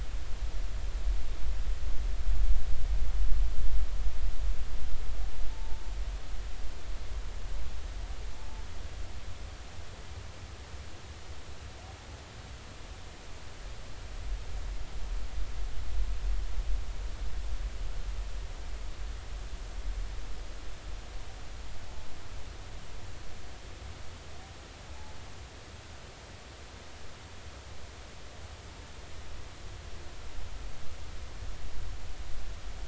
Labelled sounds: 5.5	5.8	humpback whale, 0.83 to 0.93 kHz

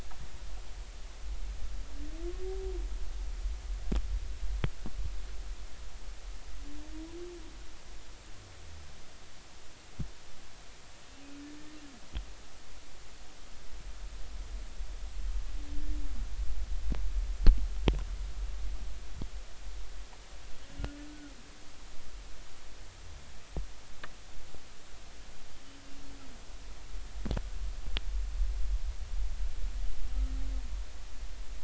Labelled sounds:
21.1	21.3	humpback whale, 1.3 to 1.5 kHz

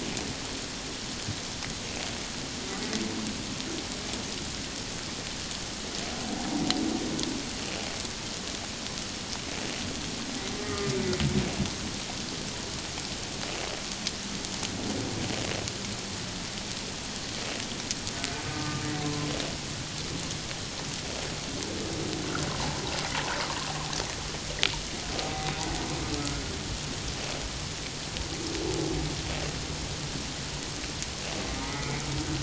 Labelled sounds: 10.6	10.9	humpback whale, 1.2 to 1.3 kHz
18.5	19.3	humpback whale, 0.97 to 1.3 kHz
22.5	22.8	humpback whale, 0.78 to 1.2 kHz
25.2	25.5	humpback whale, 0.78 to 0.81 kHz
31.6	31.9	humpback whale, 1.2 to 1.3 kHz

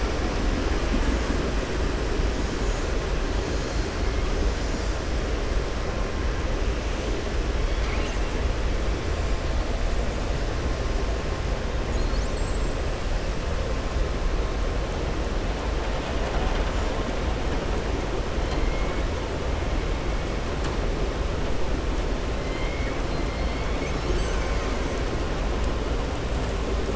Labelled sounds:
18.4	18.9	killer whale, southern resident, 2.1 to 4.3 kHz
23.4	25.0	killer whale, southern resident, 1.3 to 7.8 kHz

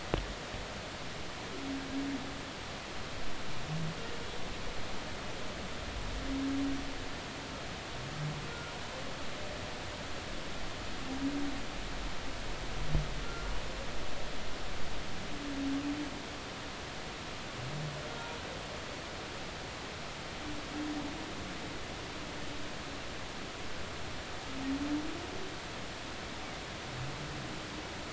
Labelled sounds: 8.5	8.7	humpback whale, 1.2 to 1.5 kHz
13.2	13.5	humpback whale, 1.3 to 1.4 kHz

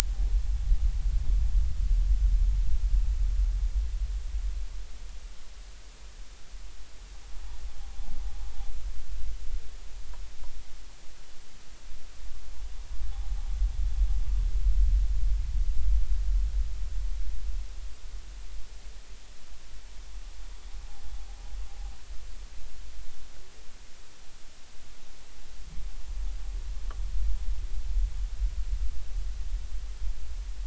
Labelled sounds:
13.1	13.4	noise likely from the mooring, 0.80 to 0.90 kHz

